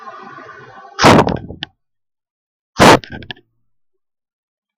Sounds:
Sneeze